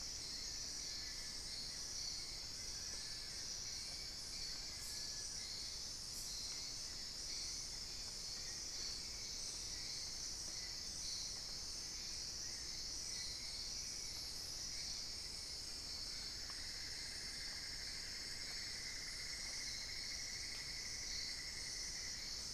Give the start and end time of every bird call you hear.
[0.13, 5.83] Long-billed Woodcreeper (Nasica longirostris)
[15.93, 22.53] Cinnamon-throated Woodcreeper (Dendrexetastes rufigula)

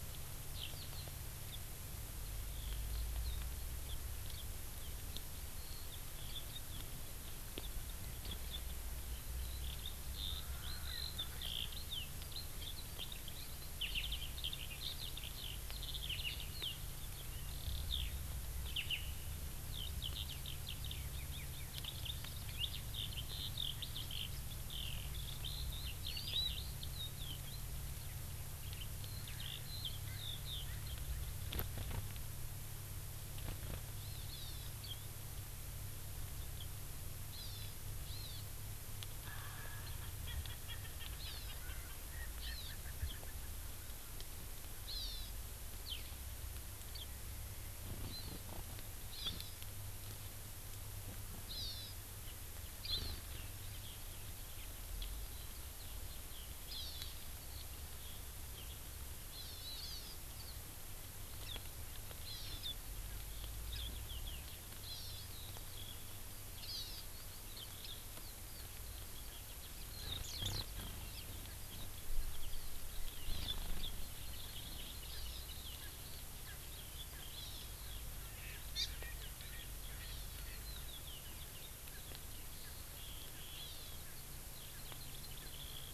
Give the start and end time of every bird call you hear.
[0.52, 1.02] Eurasian Skylark (Alauda arvensis)
[9.02, 18.12] Eurasian Skylark (Alauda arvensis)
[10.22, 11.52] Erckel's Francolin (Pternistis erckelii)
[19.62, 27.62] Eurasian Skylark (Alauda arvensis)
[26.02, 26.52] Hawaii Amakihi (Chlorodrepanis virens)
[28.62, 30.72] Eurasian Skylark (Alauda arvensis)
[34.02, 34.72] Hawaii Amakihi (Chlorodrepanis virens)
[37.32, 37.82] Hawaii Amakihi (Chlorodrepanis virens)
[38.12, 38.42] Hawaii Amakihi (Chlorodrepanis virens)
[39.22, 43.52] Erckel's Francolin (Pternistis erckelii)
[41.22, 41.62] Hawaii Amakihi (Chlorodrepanis virens)
[42.42, 42.72] Hawaii Amakihi (Chlorodrepanis virens)
[44.82, 45.32] Hawaii Amakihi (Chlorodrepanis virens)
[45.82, 46.02] Eurasian Skylark (Alauda arvensis)
[48.12, 48.42] Hawaii Amakihi (Chlorodrepanis virens)
[49.12, 49.62] Hawaii Amakihi (Chlorodrepanis virens)
[51.52, 52.02] Hawaii Amakihi (Chlorodrepanis virens)
[52.82, 53.22] Hawaii Amakihi (Chlorodrepanis virens)
[56.62, 57.12] Hawaii Amakihi (Chlorodrepanis virens)
[59.32, 60.12] Hawaii Amakihi (Chlorodrepanis virens)
[62.22, 62.62] Hawaii Amakihi (Chlorodrepanis virens)
[64.82, 65.22] Hawaii Amakihi (Chlorodrepanis virens)
[66.62, 67.02] Hawaii Amakihi (Chlorodrepanis virens)
[74.02, 75.42] Hawaii Amakihi (Chlorodrepanis virens)
[74.02, 85.94] Eurasian Skylark (Alauda arvensis)
[75.12, 75.22] Erckel's Francolin (Pternistis erckelii)
[75.82, 75.92] Erckel's Francolin (Pternistis erckelii)
[76.42, 76.62] Erckel's Francolin (Pternistis erckelii)
[77.32, 77.72] Hawaii Amakihi (Chlorodrepanis virens)
[78.22, 80.62] Erckel's Francolin (Pternistis erckelii)
[78.72, 78.92] Hawaii Amakihi (Chlorodrepanis virens)
[80.02, 80.42] Hawaii Amakihi (Chlorodrepanis virens)
[81.92, 82.02] Erckel's Francolin (Pternistis erckelii)
[82.62, 82.72] Erckel's Francolin (Pternistis erckelii)
[83.52, 84.02] Hawaii Amakihi (Chlorodrepanis virens)
[84.02, 84.22] Erckel's Francolin (Pternistis erckelii)
[84.72, 84.82] Erckel's Francolin (Pternistis erckelii)
[84.72, 85.94] Hawaii Amakihi (Chlorodrepanis virens)

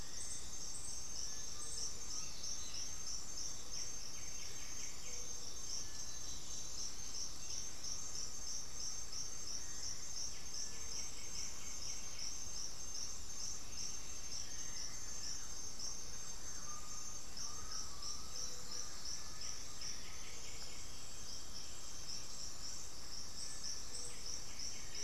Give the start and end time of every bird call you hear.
[1.52, 3.32] Undulated Tinamou (Crypturellus undulatus)
[1.62, 3.12] unidentified bird
[3.32, 5.62] White-winged Becard (Pachyramphus polychopterus)
[5.62, 6.42] Cinereous Tinamou (Crypturellus cinereus)
[5.62, 7.52] Black-throated Antbird (Myrmophylax atrothorax)
[10.22, 12.42] White-winged Becard (Pachyramphus polychopterus)
[14.52, 19.12] Thrush-like Wren (Campylorhynchus turdinus)
[16.42, 20.52] Undulated Tinamou (Crypturellus undulatus)
[18.22, 20.52] Black-throated Antbird (Myrmophylax atrothorax)
[19.12, 25.04] White-winged Becard (Pachyramphus polychopterus)
[19.52, 22.52] Chestnut-winged Foliage-gleaner (Dendroma erythroptera)
[23.22, 25.04] Cinereous Tinamou (Crypturellus cinereus)

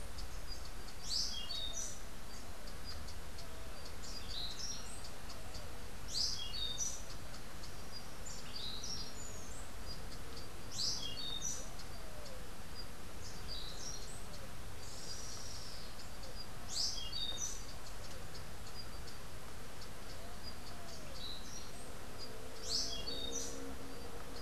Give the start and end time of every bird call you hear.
[0.98, 2.18] Orange-billed Nightingale-Thrush (Catharus aurantiirostris)
[3.98, 5.18] Orange-billed Nightingale-Thrush (Catharus aurantiirostris)
[5.98, 7.08] Orange-billed Nightingale-Thrush (Catharus aurantiirostris)
[8.38, 9.48] Orange-billed Nightingale-Thrush (Catharus aurantiirostris)
[10.58, 11.68] Orange-billed Nightingale-Thrush (Catharus aurantiirostris)
[13.28, 14.48] Orange-billed Nightingale-Thrush (Catharus aurantiirostris)
[14.68, 16.08] Rufous-tailed Hummingbird (Amazilia tzacatl)
[16.58, 17.68] Orange-billed Nightingale-Thrush (Catharus aurantiirostris)
[22.58, 23.68] Orange-billed Nightingale-Thrush (Catharus aurantiirostris)

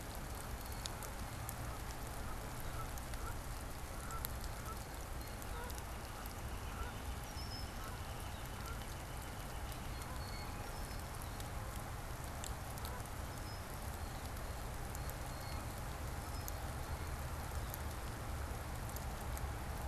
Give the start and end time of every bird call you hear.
[0.00, 1.60] Blue Jay (Cyanocitta cristata)
[0.00, 9.10] Canada Goose (Branta canadensis)
[5.10, 10.00] Northern Flicker (Colaptes auratus)
[7.10, 7.90] Red-winged Blackbird (Agelaius phoeniceus)
[9.80, 10.70] Blue Jay (Cyanocitta cristata)
[10.60, 11.20] Red-winged Blackbird (Agelaius phoeniceus)
[12.70, 16.20] Blue Jay (Cyanocitta cristata)

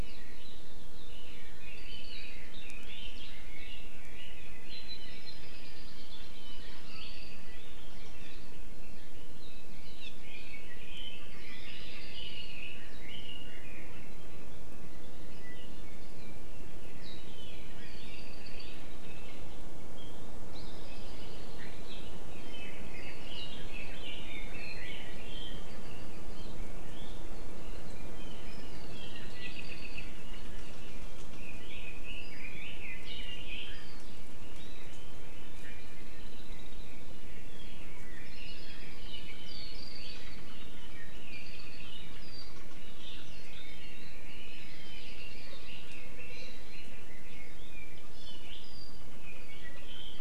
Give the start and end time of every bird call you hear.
[1.06, 4.76] Red-billed Leiothrix (Leiothrix lutea)
[4.96, 6.36] Hawaii Creeper (Loxops mana)
[9.96, 10.16] Apapane (Himatione sanguinea)
[10.16, 13.66] Red-billed Leiothrix (Leiothrix lutea)
[11.36, 12.66] Hawaii Creeper (Loxops mana)
[15.66, 16.16] Iiwi (Drepanis coccinea)
[18.06, 18.86] Apapane (Himatione sanguinea)
[20.66, 21.86] Hawaii Creeper (Loxops mana)
[22.36, 25.76] Red-billed Leiothrix (Leiothrix lutea)
[25.66, 26.46] Apapane (Himatione sanguinea)
[29.36, 30.16] Apapane (Himatione sanguinea)
[31.36, 34.06] Red-billed Leiothrix (Leiothrix lutea)
[35.76, 37.36] Hawaii Creeper (Loxops mana)
[37.66, 42.16] Red-billed Leiothrix (Leiothrix lutea)
[38.26, 39.16] Hawaii Creeper (Loxops mana)
[42.96, 47.56] Red-billed Leiothrix (Leiothrix lutea)
[44.56, 45.46] Hawaii Creeper (Loxops mana)
[48.06, 48.56] Iiwi (Drepanis coccinea)

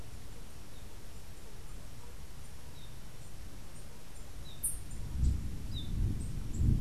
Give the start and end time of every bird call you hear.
[4.40, 5.00] unidentified bird

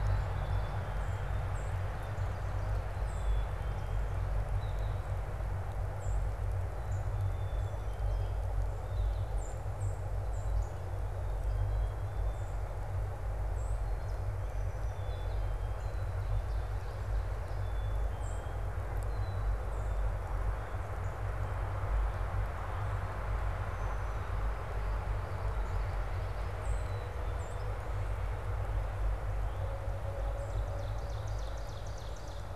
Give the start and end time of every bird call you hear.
[0.00, 1.46] Common Yellowthroat (Geothlypis trichas)
[0.00, 3.76] Black-capped Chickadee (Poecile atricapillus)
[1.36, 3.66] Song Sparrow (Melospiza melodia)
[4.46, 5.06] American Goldfinch (Spinus tristis)
[5.86, 10.86] Song Sparrow (Melospiza melodia)
[7.16, 9.36] Gray Catbird (Dumetella carolinensis)
[13.36, 18.56] Song Sparrow (Melospiza melodia)
[14.66, 19.86] Black-capped Chickadee (Poecile atricapillus)
[25.06, 26.66] Common Yellowthroat (Geothlypis trichas)
[26.26, 27.76] Song Sparrow (Melospiza melodia)
[26.76, 27.76] Black-capped Chickadee (Poecile atricapillus)
[30.16, 32.46] Ovenbird (Seiurus aurocapilla)

